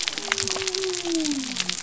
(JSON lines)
{"label": "biophony", "recorder": "SoundTrap 300"}